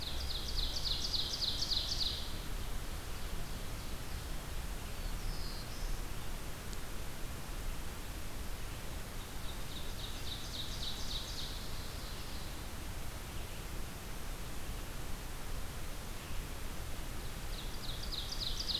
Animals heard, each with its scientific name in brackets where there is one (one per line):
Ovenbird (Seiurus aurocapilla)
Black-throated Blue Warbler (Setophaga caerulescens)
Red-eyed Vireo (Vireo olivaceus)